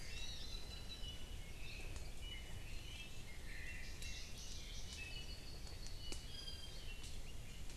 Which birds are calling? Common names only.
Hawaii Amakihi, Apapane, Iiwi, Chinese Hwamei